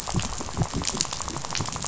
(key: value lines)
label: biophony, rattle
recorder: SoundTrap 500